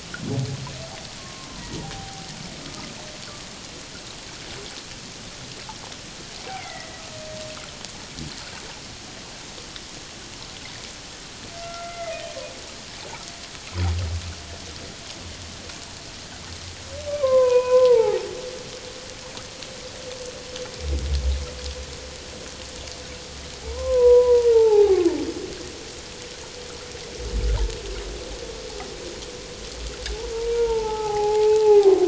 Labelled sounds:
1.2	2.3	humpback whale, 0.78 to 1.1 kHz
6.4	7.0	humpback whale, 1.9 to 2.4 kHz
11.6	12.3	humpback whale, 1.2 to 2.1 kHz
17.1	18.3	humpback whale, 0.78 to 2.6 kHz
23.6	25.0	humpback whale, 0.78 to 1.1 kHz
30.1	32.0	humpback whale, 0.78 to 1.4 kHz

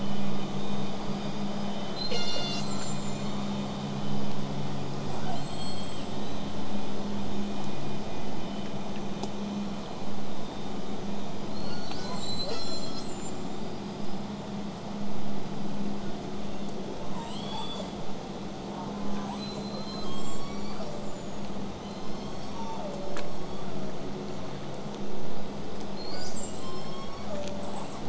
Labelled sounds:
0.9	1.8	killer whale, southern resident, 4.5 to 8.0 kHz
2.0	3.5	killer whale, southern resident, call S42, 1.2 to 8.0 kHz
5.1	6.2	killer whale, southern resident, J pod, call S44, 2.5 to 8.0 kHz
6.2	6.6	killer whale, southern resident, whistle, 3.8 to 8.0 kHz
6.5	11.5	vessel noise, 0 to 8.0 kHz
11.5	13.4	killer whale, southern resident, call S42, 0.83 to 8.0 kHz
13.5	14.3	killer whale, southern resident, 4.6 to 8.0 kHz
16.0	16.7	killer whale, southern resident, 3.2 to 8.0 kHz
16.9	18.1	killer whale, southern resident, J pod, call S44, 0.66 to 8.0 kHz
18.7	19.3	killer whale, southern resident, J pod, call S04, 0.55 to 1.5 kHz
19.3	20.1	killer whale, southern resident, J pod, call S13, 1.0 to 8.0 kHz
19.9	21.6	killer whale, southern resident, J pod, call S03, 1.0 to 8.0 kHz
20.1	21.6	killer whale, southern resident, whistle, 6.5 to 8.0 kHz
21.8	23.4	killer whale, southern resident, call S01, 0.39 to 8.0 kHz
23.0	24.3	killer whale, southern resident, J pod, call S03, 0.83 to 8.0 kHz
25.3	26.1	killer whale, southern resident, 4.6 to 8.0 kHz
26.0	26.7	killer whale, southern resident, call S42, 1.2 to 8.0 kHz
26.6	27.9	killer whale, southern resident, J pod, call S03, 0.46 to 8.0 kHz
27.6	28.0	killer whale, southern resident, L pod, call S33, 7.3 to 8.0 kHz

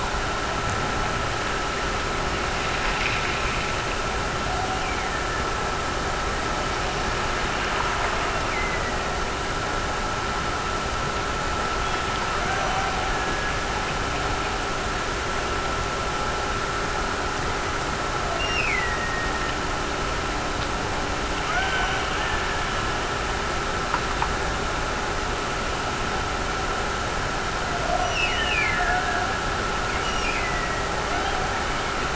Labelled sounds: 4.6	6.0	killer whale, Bigg's (transient), Gulf of Alaska transient, 1.5 to 2.9 kHz
8.1	9.4	killer whale, Bigg's (transient), Gulf of Alaska transient, 1.7 to 2.8 kHz
12.2	14.4	killer whale, Bigg's (transient), Gulf of Alaska transient, 1.2 to 2.1 kHz
18.3	19.7	killer whale, Bigg's (transient), Gulf of Alaska transient, 1.8 to 5.7 kHz
21.5	23.0	killer whale, Bigg's (transient), Gulf of Alaska transient, 0.48 to 1.9 kHz
28.0	29.6	killer whale, Bigg's (transient), Gulf of Alaska transient, 1.4 to 6.0 kHz
30.0	32.1	killer whale, Bigg's (transient), Gulf of Alaska transient, 0.53 to 6.0 kHz

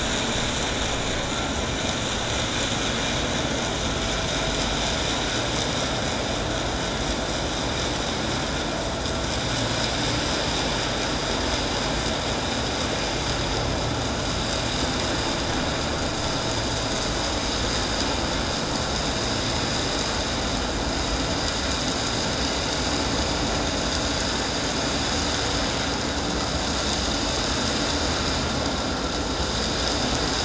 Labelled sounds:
1.3	1.6	vessel noise, 1.3 to 1.5 kHz

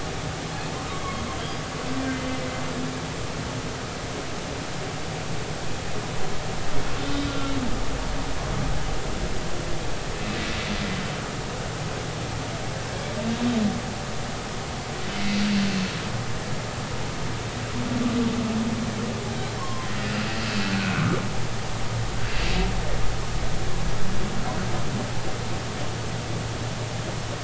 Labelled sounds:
7.0	7.5	humpback whale, 1.3 to 3.7 kHz
19.6	20.3	humpback whale, 0.93 to 5.0 kHz
20.8	21.0	humpback whale, 1.3 to 1.6 kHz

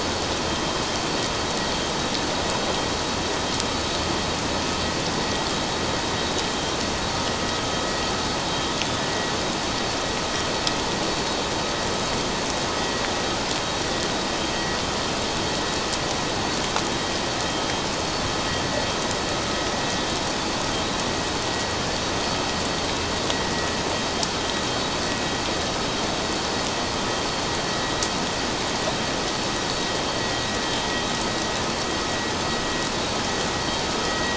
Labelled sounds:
34.1	34.3	vessel noise, 1.8 to 2.0 kHz

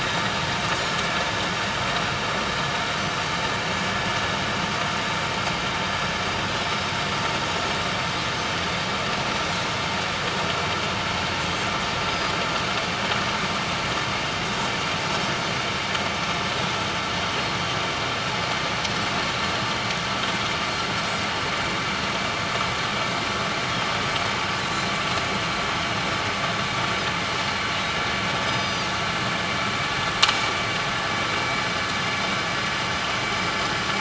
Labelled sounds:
6.6	6.9	Pacific white-sided dolphin, 5.2 to 5.4 kHz
8.3	8.5	Pacific white-sided dolphin, 6.1 to 6.5 kHz
9.2	9.6	Pacific white-sided dolphin, 5.7 to 5.9 kHz
11.4	11.7	Pacific white-sided dolphin, 7.2 to 7.6 kHz
24.6	24.9	Pacific white-sided dolphin, 3.8 to 4.1 kHz
28.5	28.9	Pacific white-sided dolphin, 3.6 to 6.2 kHz

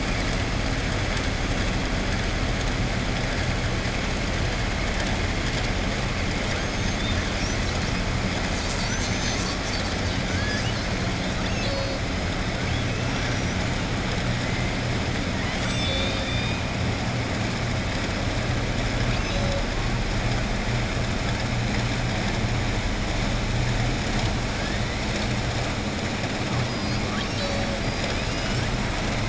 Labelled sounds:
13.0	13.6	killer whale, southern resident, 5.1 to 6.8 kHz

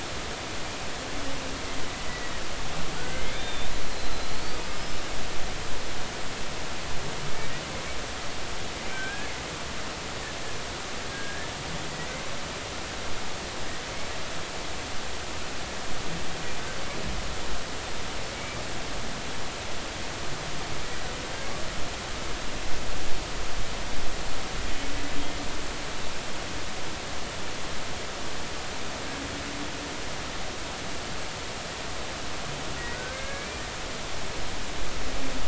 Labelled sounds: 3.0	5.0	killer whale, Bigg's (transient), 1.4 to 5.3 kHz
8.9	9.3	killer whale, Bigg's (transient), 1.5 to 1.8 kHz
11.1	11.5	killer whale, Bigg's (transient), 1.6 to 1.8 kHz
18.3	18.6	killer whale, Bigg's (transient), 2.1 to 2.4 kHz
32.9	33.6	humpback whale, 1.4 to 2.4 kHz

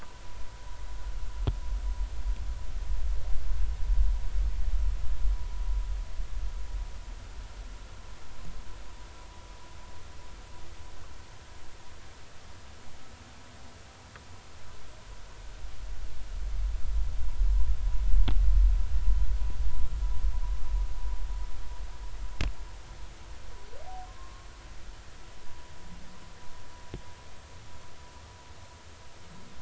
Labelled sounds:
24.0	24.5	humpback whale, 1.0 to 1.2 kHz

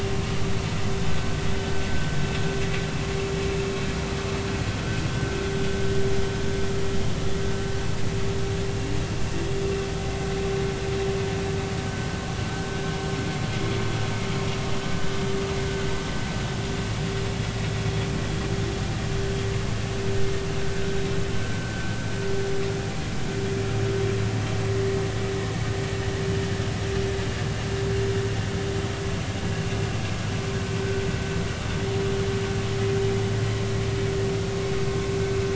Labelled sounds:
8.7	8.9	vessel noise, 2.7 to 2.9 kHz

